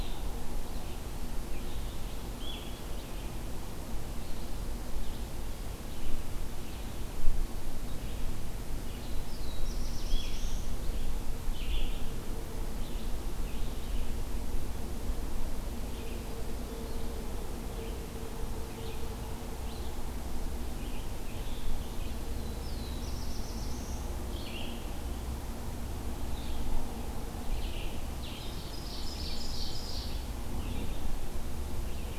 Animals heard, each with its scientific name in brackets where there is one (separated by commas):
Red-eyed Vireo (Vireo olivaceus), Ovenbird (Seiurus aurocapilla), Black-throated Blue Warbler (Setophaga caerulescens)